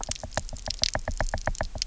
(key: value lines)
label: biophony, knock
recorder: SoundTrap 300